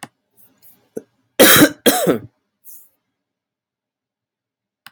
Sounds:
Cough